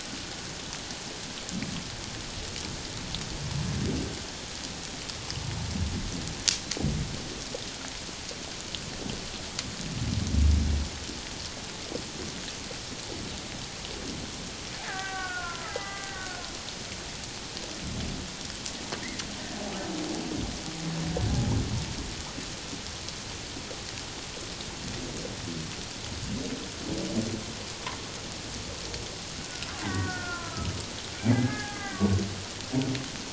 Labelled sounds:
14.8	16.4	killer whale, Bigg's (transient), call T07, 0.78 to 2.1 kHz
29.3	30.8	killer whale, Bigg's (transient), 0.97 to 2.1 kHz
31.3	32.2	killer whale, Bigg's (transient), 1.0 to 2.1 kHz

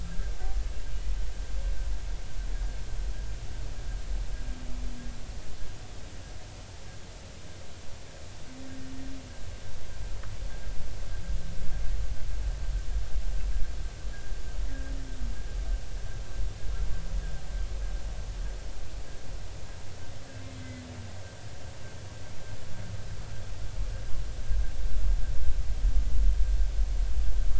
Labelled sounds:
20.6	20.8	humpback whale, 2.0 to 2.1 kHz

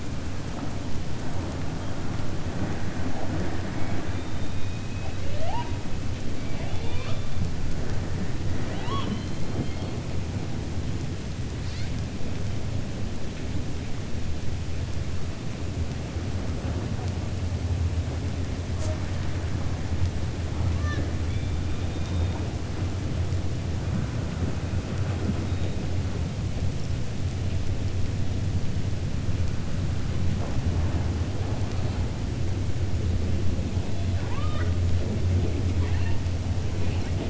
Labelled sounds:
6.4	7.3	killer whale, 0.51 to 5.4 kHz
34.1	34.7	killer whale, 0.58 to 3.7 kHz
35.7	36.2	killer whale, 0.86 to 4.2 kHz

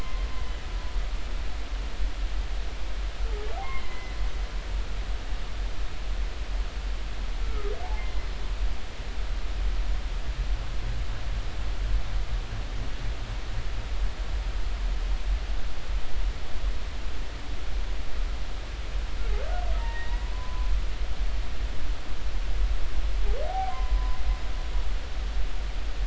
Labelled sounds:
3.6	4.1	humpback whale, 0.80 to 2.2 kHz
7.4	7.7	humpback whale, 1.2 to 1.4 kHz
19.8	20.7	humpback whale, 0.86 to 2.0 kHz
23.4	24.2	humpback whale, 0.80 to 1.2 kHz

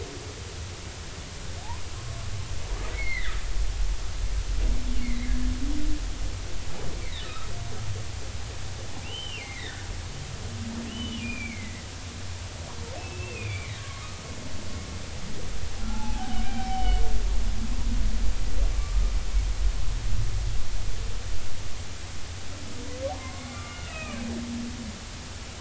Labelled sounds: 2.9	3.4	humpback whale, 1.4 to 4.4 kHz
5.0	5.3	humpback whale, 1.8 to 2.3 kHz
7.0	7.5	humpback whale, 1.2 to 4.1 kHz
9.0	9.8	humpback whale, 1.7 to 3.2 kHz
10.9	11.9	humpback whale, 1.8 to 3.1 kHz
13.0	14.2	humpback whale, 1.1 to 2.8 kHz
15.8	17.0	humpback whale, 0.80 to 5.4 kHz
18.8	19.1	humpback whale, 1.1 to 1.3 kHz
23.2	24.2	humpback whale, 0.99 to 2.9 kHz

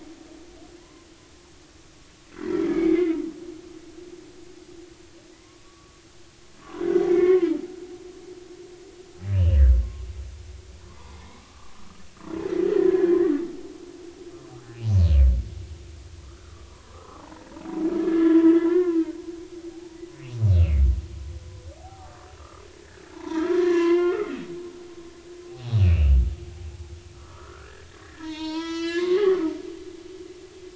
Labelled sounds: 0.8	1.1	humpback whale, 0.96 to 1.1 kHz
2.4	3.1	humpback whale, 1.8 to 2.4 kHz
5.4	7.5	humpback whale, 0.96 to 2.3 kHz
9.3	9.6	humpback whale, 2.6 to 3.1 kHz
10.9	12.0	humpback whale, 0.80 to 4.0 kHz
12.7	13.2	humpback whale, 1.6 to 2.0 kHz
16.2	17.5	humpback whale, 0.80 to 1.5 kHz
18.0	19.0	humpback whale, 0.96 to 3.5 kHz
19.7	20.0	humpback whale, 0.80 to 0.96 kHz
20.5	22.6	humpback whale, 0.80 to 2.9 kHz
23.1	24.3	humpback whale, 0.83 to 3.3 kHz
25.5	26.2	humpback whale, 0.80 to 3.0 kHz
27.1	29.5	humpback whale, 0.86 to 7.3 kHz

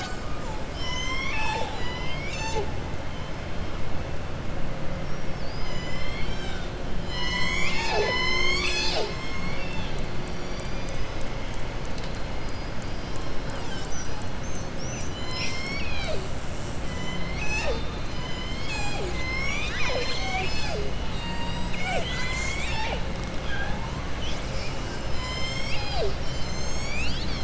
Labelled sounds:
9.3	9.9	killer whale, southern resident, 2.2 to 4.5 kHz

